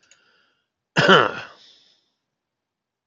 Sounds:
Cough